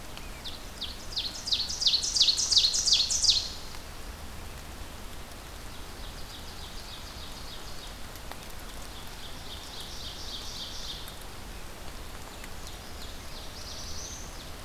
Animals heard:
Brown Creeper (Certhia americana)
Ovenbird (Seiurus aurocapilla)
Black-throated Blue Warbler (Setophaga caerulescens)

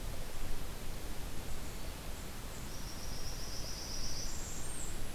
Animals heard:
Blackburnian Warbler (Setophaga fusca)

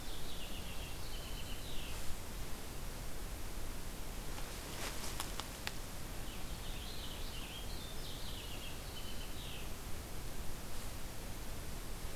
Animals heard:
Purple Finch (Haemorhous purpureus)

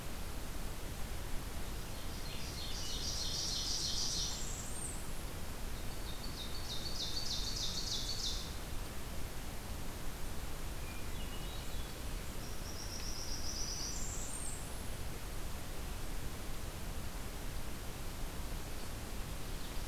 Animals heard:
Hermit Thrush (Catharus guttatus)
Ovenbird (Seiurus aurocapilla)
Blackburnian Warbler (Setophaga fusca)

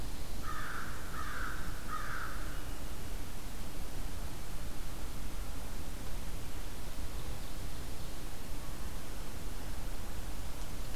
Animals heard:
American Crow (Corvus brachyrhynchos)

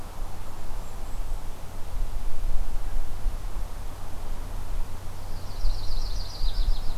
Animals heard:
Golden-crowned Kinglet (Regulus satrapa)
Yellow-rumped Warbler (Setophaga coronata)

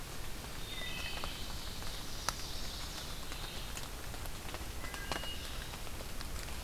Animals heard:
Chestnut-sided Warbler (Setophaga pensylvanica)
Wood Thrush (Hylocichla mustelina)
Red-eyed Vireo (Vireo olivaceus)
Ovenbird (Seiurus aurocapilla)

